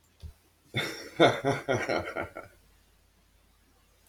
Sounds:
Laughter